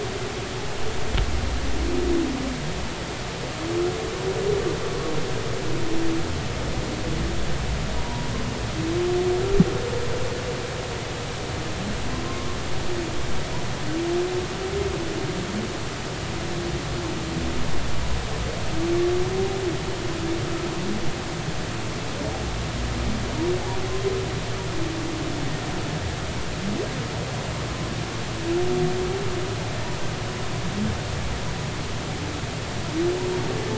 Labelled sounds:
8.0	8.3	humpback whale, 0.90 to 1.0 kHz

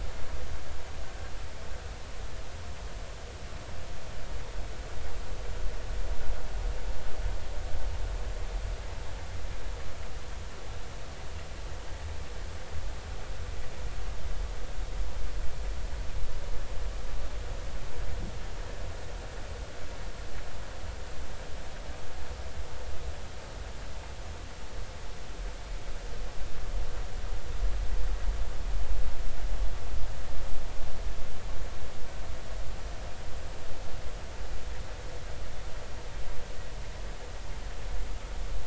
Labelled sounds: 1.0	1.3	vessel noise, 1.5 to 1.7 kHz

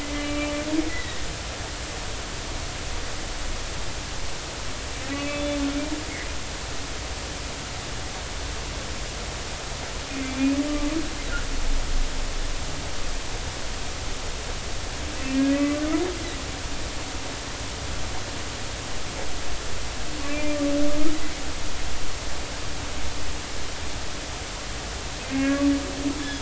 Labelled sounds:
0.0	0.5	humpback whale, 1.2 to 2.4 kHz
0.9	1.2	humpback whale, 1.8 to 4.1 kHz
5.1	5.6	humpback whale, 2.4 to 3.5 kHz
10.2	10.6	humpback whale, 2.2 to 2.6 kHz
15.3	15.8	humpback whale, 1.1 to 2.6 kHz
20.3	20.6	humpback whale, 2.3 to 2.5 kHz
25.2	25.6	humpback whale, 1.6 to 2.2 kHz
26.2	26.4	humpback whale, 3.3 to 3.6 kHz

